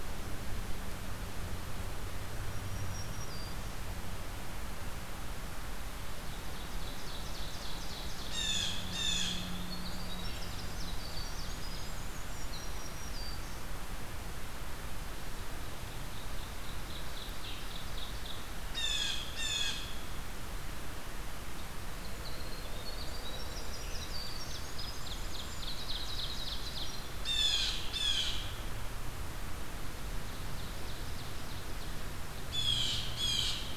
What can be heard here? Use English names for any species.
Black-throated Green Warbler, Ovenbird, Blue Jay, Winter Wren